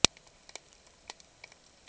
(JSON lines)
{"label": "ambient", "recorder": "HydroMoth"}